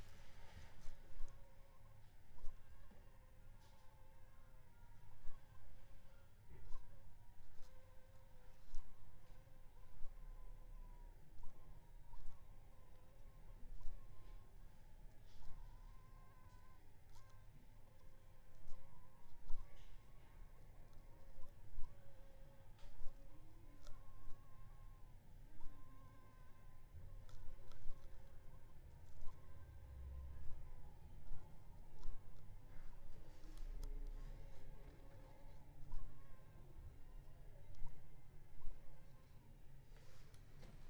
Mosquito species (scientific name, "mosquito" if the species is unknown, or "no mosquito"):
Anopheles funestus s.s.